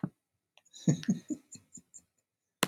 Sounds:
Laughter